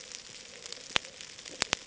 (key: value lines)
label: ambient
recorder: HydroMoth